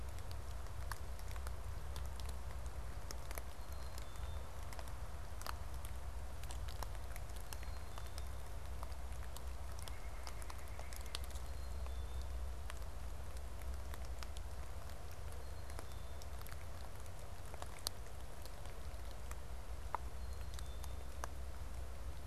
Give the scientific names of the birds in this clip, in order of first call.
Poecile atricapillus, Sitta carolinensis